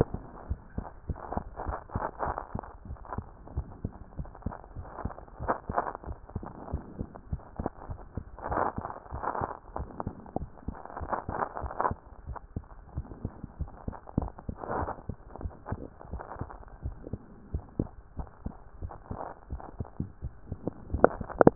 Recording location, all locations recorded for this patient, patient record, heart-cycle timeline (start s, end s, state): tricuspid valve (TV)
pulmonary valve (PV)+tricuspid valve (TV)+mitral valve (MV)
#Age: Child
#Sex: Female
#Height: 120.0 cm
#Weight: 24.4 kg
#Pregnancy status: False
#Murmur: Absent
#Murmur locations: nan
#Most audible location: nan
#Systolic murmur timing: nan
#Systolic murmur shape: nan
#Systolic murmur grading: nan
#Systolic murmur pitch: nan
#Systolic murmur quality: nan
#Diastolic murmur timing: nan
#Diastolic murmur shape: nan
#Diastolic murmur grading: nan
#Diastolic murmur pitch: nan
#Diastolic murmur quality: nan
#Outcome: Normal
#Campaign: 2014 screening campaign
0.00	2.75	unannotated
2.75	2.88	diastole
2.88	2.98	S1
2.98	3.16	systole
3.16	3.26	S2
3.26	3.54	diastole
3.54	3.66	S1
3.66	3.82	systole
3.82	3.92	S2
3.92	4.18	diastole
4.18	4.30	S1
4.30	4.44	systole
4.44	4.54	S2
4.54	4.76	diastole
4.76	4.88	S1
4.88	5.02	systole
5.02	5.12	S2
5.12	5.40	diastole
5.40	5.54	S1
5.54	5.68	systole
5.68	5.78	S2
5.78	6.06	diastole
6.06	6.18	S1
6.18	6.34	systole
6.34	6.46	S2
6.46	6.72	diastole
6.72	6.84	S1
6.84	6.98	systole
6.98	7.08	S2
7.08	7.30	diastole
7.30	7.42	S1
7.42	7.58	systole
7.58	7.70	S2
7.70	7.88	diastole
7.88	8.00	S1
8.00	8.16	systole
8.16	8.24	S2
8.24	8.48	diastole
8.48	21.55	unannotated